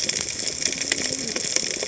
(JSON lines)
{"label": "biophony, cascading saw", "recorder": "HydroMoth"}